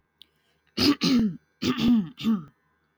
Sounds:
Throat clearing